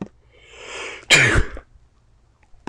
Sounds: Sneeze